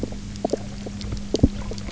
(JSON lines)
{"label": "biophony, knock croak", "recorder": "SoundTrap 300"}